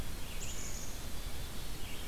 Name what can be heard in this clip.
Red-eyed Vireo, Black-capped Chickadee